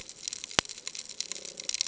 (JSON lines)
{"label": "ambient", "recorder": "HydroMoth"}